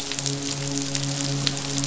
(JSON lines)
{"label": "biophony, midshipman", "recorder": "SoundTrap 500"}